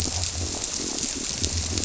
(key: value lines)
label: biophony
recorder: SoundTrap 300